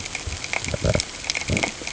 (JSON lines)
{"label": "ambient", "recorder": "HydroMoth"}